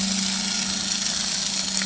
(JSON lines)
{"label": "anthrophony, boat engine", "recorder": "HydroMoth"}